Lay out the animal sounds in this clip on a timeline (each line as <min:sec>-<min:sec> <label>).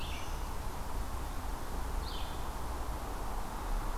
0:00.0-0:04.0 Blue-headed Vireo (Vireo solitarius)